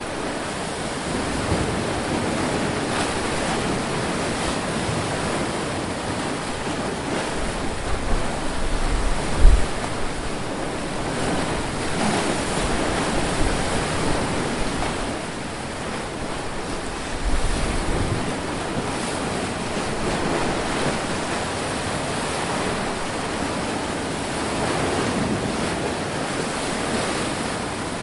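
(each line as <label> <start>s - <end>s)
A rhythmic whooshing sound as the tide rolls in and out. 0.0s - 28.0s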